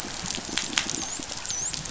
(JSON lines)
{"label": "biophony, dolphin", "recorder": "SoundTrap 500"}